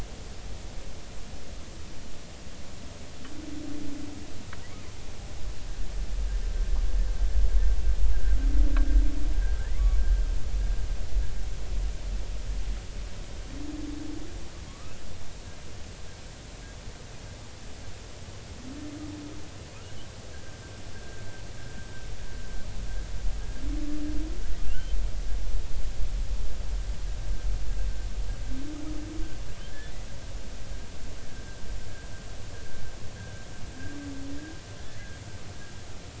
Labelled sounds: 9.6	9.9	humpback whale, 1.2 to 2.3 kHz
14.7	14.9	humpback whale, 1.1 to 1.3 kHz
20.9	21.2	humpback whale, 1.5 to 1.7 kHz
24.6	25.0	humpback whale, 2.6 to 3.2 kHz

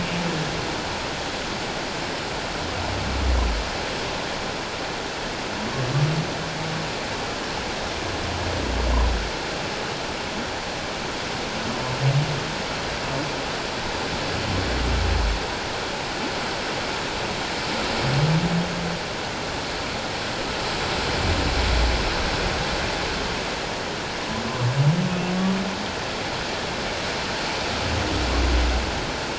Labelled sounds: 25.4	25.6	humpback whale, 1.1 to 1.2 kHz

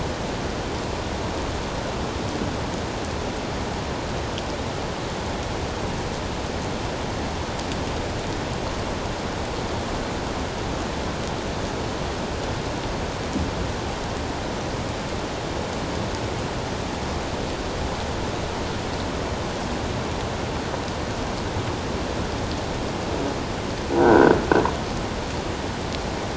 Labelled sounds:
24.0	24.3	croaking sound likely from a nearby submerged object, 1.4 to 1.6 kHz

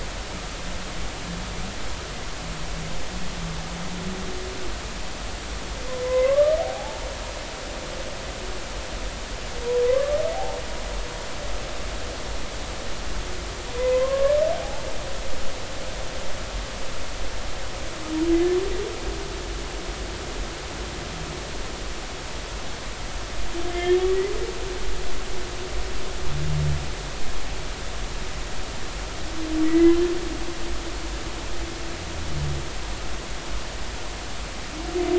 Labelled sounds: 6.0	7.1	humpback whale, 0.80 to 2.2 kHz
10.3	10.6	humpback whale, 0.80 to 0.93 kHz
13.8	14.9	humpback whale, 0.80 to 2.1 kHz
23.7	24.0	humpback whale, 1.7 to 3.3 kHz
29.7	30.0	humpback whale, 1.9 to 2.1 kHz

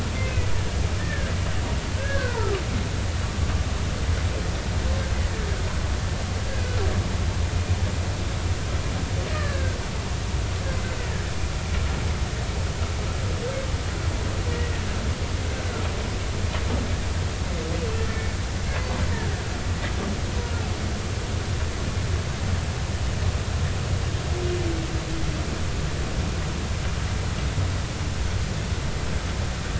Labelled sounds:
1.0	1.3	humpback whale, 1.5 to 1.9 kHz
3.0	3.5	humpback whale, 1.2 to 1.7 kHz
9.3	9.8	humpback whale, 1.1 to 1.9 kHz

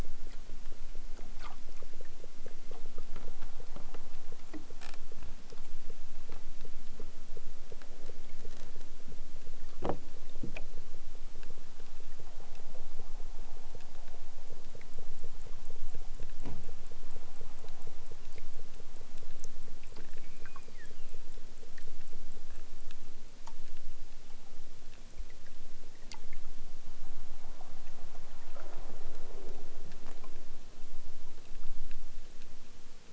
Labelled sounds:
20.1	21.3	killer whale, southern Alaska resident, 0.52 to 5.5 kHz

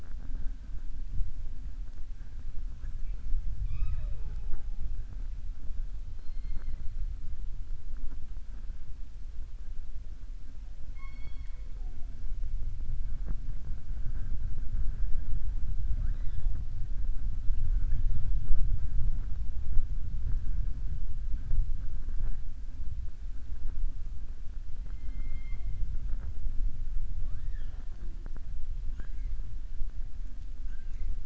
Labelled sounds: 3.6	4.7	killer whale, southern resident, 0.07 to 5.1 kHz
30.6	31.1	killer whale, southern resident, 1.4 to 3.2 kHz

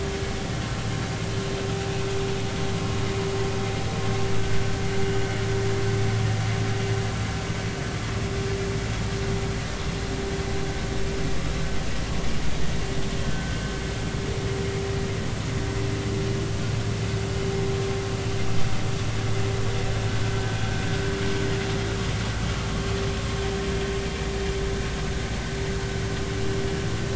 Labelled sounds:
13.2	13.6	vessel noise, 1.5 to 1.6 kHz

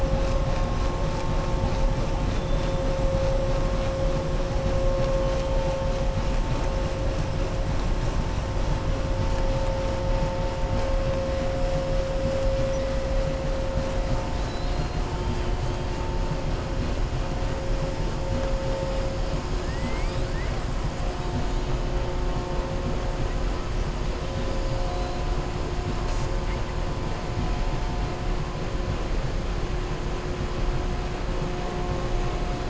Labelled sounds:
14.3	14.8	killer whale, southern resident, 3.3 to 4.8 kHz
19.6	20.3	killer whale, southern resident, 1.2 to 5.0 kHz

